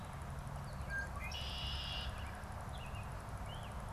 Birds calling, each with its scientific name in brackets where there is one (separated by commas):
Red-winged Blackbird (Agelaius phoeniceus), American Robin (Turdus migratorius)